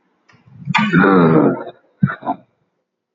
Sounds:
Sniff